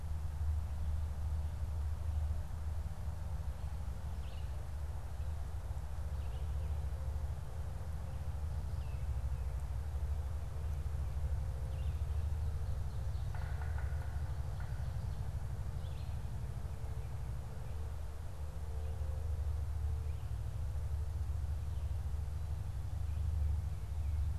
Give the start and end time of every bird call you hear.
[4.08, 12.18] Red-eyed Vireo (Vireo olivaceus)
[12.98, 15.18] Yellow-bellied Sapsucker (Sphyrapicus varius)

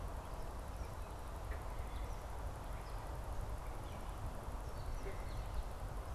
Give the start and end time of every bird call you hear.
[0.98, 5.88] unidentified bird

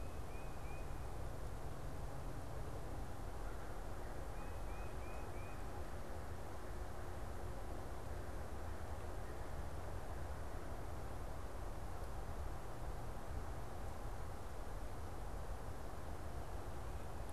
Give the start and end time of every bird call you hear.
[0.00, 5.70] Tufted Titmouse (Baeolophus bicolor)

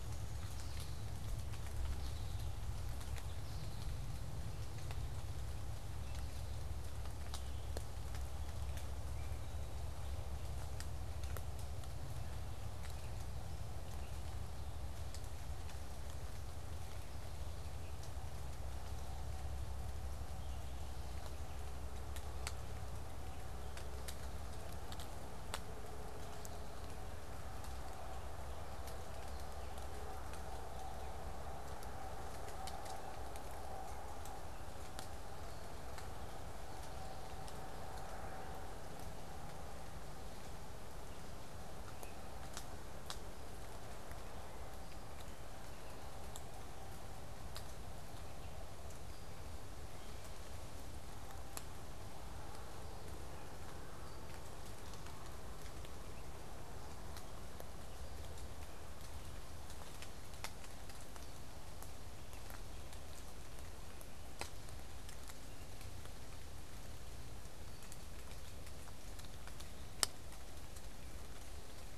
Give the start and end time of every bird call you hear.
[0.00, 0.72] Downy Woodpecker (Dryobates pubescens)
[0.00, 7.12] American Goldfinch (Spinus tristis)
[7.72, 15.32] unidentified bird

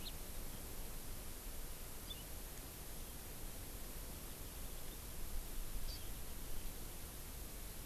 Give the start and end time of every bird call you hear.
[0.00, 0.10] House Finch (Haemorhous mexicanus)
[2.10, 2.30] Hawaii Amakihi (Chlorodrepanis virens)
[5.90, 6.00] Hawaii Amakihi (Chlorodrepanis virens)

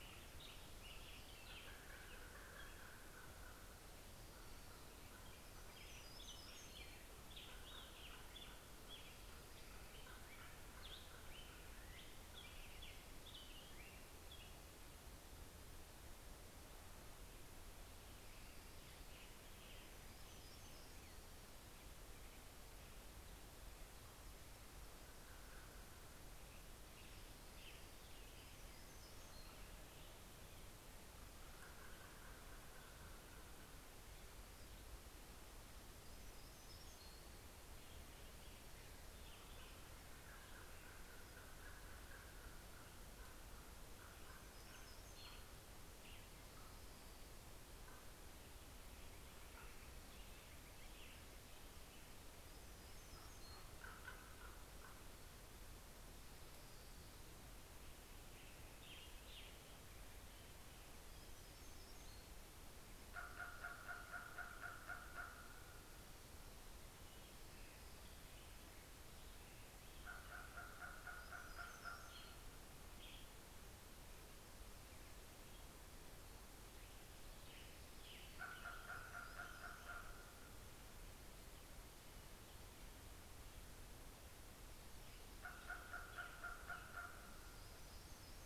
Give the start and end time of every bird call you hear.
[0.00, 9.77] Hermit Warbler (Setophaga occidentalis)
[0.00, 11.56] American Robin (Turdus migratorius)
[0.00, 11.56] Common Raven (Corvus corax)
[11.87, 65.56] Western Tanager (Piranga ludoviciana)
[19.16, 64.47] Hermit Warbler (Setophaga occidentalis)
[22.96, 35.97] Common Raven (Corvus corax)
[37.87, 55.77] Common Raven (Corvus corax)
[59.66, 65.56] Common Raven (Corvus corax)
[67.86, 74.27] Common Raven (Corvus corax)
[69.47, 75.17] Hermit Warbler (Setophaga occidentalis)
[70.97, 88.46] Western Tanager (Piranga ludoviciana)
[76.86, 82.67] Common Raven (Corvus corax)
[77.97, 82.36] Hermit Warbler (Setophaga occidentalis)
[84.17, 88.46] Common Raven (Corvus corax)
[85.97, 88.46] Hermit Warbler (Setophaga occidentalis)

